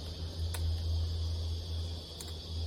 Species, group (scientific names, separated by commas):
Psaltoda plaga, Cicadidae